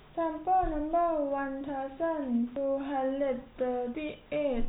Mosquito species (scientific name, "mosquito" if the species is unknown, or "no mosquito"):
no mosquito